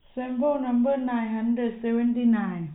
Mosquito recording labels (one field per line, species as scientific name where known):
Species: no mosquito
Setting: cup